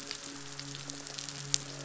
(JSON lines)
{"label": "biophony, midshipman", "recorder": "SoundTrap 500"}